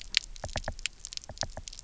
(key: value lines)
label: biophony, knock
recorder: SoundTrap 300